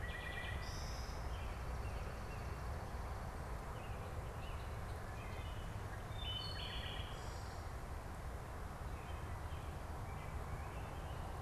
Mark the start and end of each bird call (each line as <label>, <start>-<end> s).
Wood Thrush (Hylocichla mustelina), 0.0-1.4 s
American Robin (Turdus migratorius), 0.0-11.4 s
Swamp Sparrow (Melospiza georgiana), 1.1-3.2 s
Wood Thrush (Hylocichla mustelina), 5.8-7.6 s